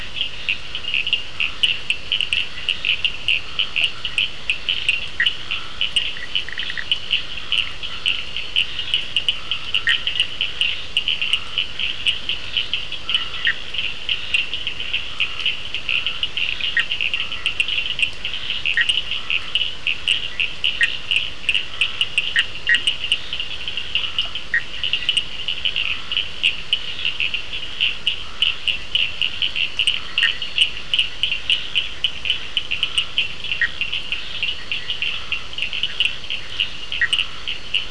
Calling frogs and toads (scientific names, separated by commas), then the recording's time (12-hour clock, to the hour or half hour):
Elachistocleis bicolor, Sphaenorhynchus surdus, Scinax perereca, Boana bischoffi
~9pm